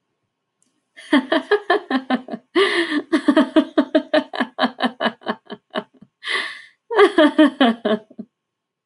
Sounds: Laughter